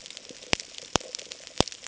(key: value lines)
label: ambient
recorder: HydroMoth